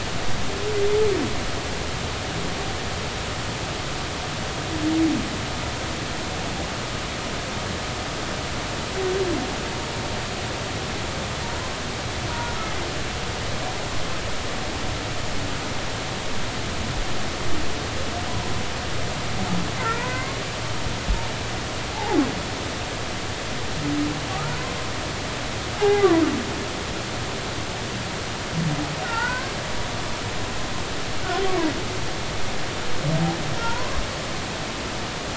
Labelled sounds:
12.3	12.6	humpback whale, 0.90 to 1.5 kHz
18.3	18.5	humpback whale, 0.86 to 1.0 kHz
19.9	20.4	humpback whale, 0.90 to 2.3 kHz
21.9	22.2	humpback whale, 0.80 to 0.96 kHz
25.8	26.1	humpback whale, 0.80 to 0.93 kHz
29.0	29.5	humpback whale, 0.83 to 2.0 kHz
31.5	31.7	humpback whale, 0.90 to 1.2 kHz
33.6	34.0	humpback whale, 0.86 to 1.5 kHz

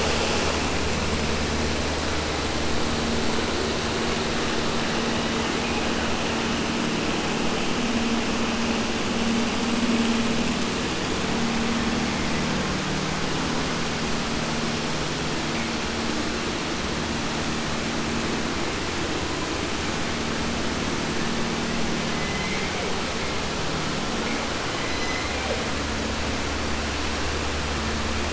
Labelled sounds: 21.9	23.0	killer whale, southern resident, J pod, call S01, 0.10 to 6.8 kHz
24.6	25.8	killer whale, southern resident, J pod, call S01, 0.25 to 7.7 kHz

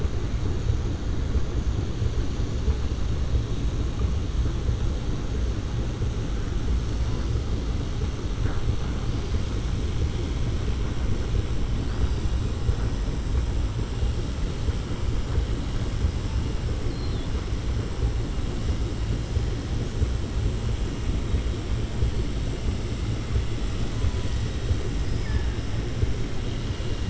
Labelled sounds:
25.1	25.6	killer whale, southern resident, 0.83 to 2.3 kHz

